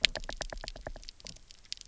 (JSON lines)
{"label": "biophony, knock", "recorder": "SoundTrap 300"}